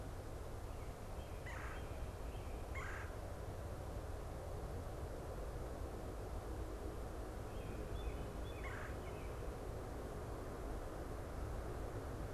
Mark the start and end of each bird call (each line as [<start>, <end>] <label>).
[1.40, 9.00] Red-bellied Woodpecker (Melanerpes carolinus)
[7.60, 9.60] American Robin (Turdus migratorius)